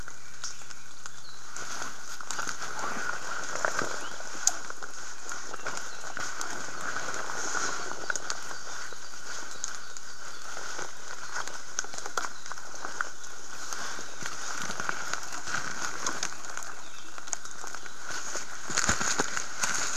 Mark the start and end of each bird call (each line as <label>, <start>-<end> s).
Red-billed Leiothrix (Leiothrix lutea), 0.0-1.1 s
Apapane (Himatione sanguinea), 1.2-1.6 s
Apapane (Himatione sanguinea), 4.0-4.3 s